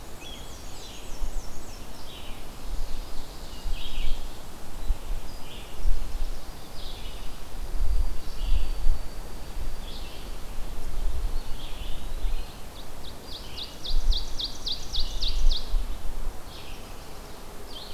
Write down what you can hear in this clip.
Black-and-white Warbler, Red-eyed Vireo, Ovenbird, Eastern Wood-Pewee